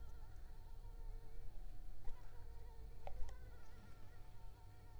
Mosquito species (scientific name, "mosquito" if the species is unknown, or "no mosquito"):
Anopheles arabiensis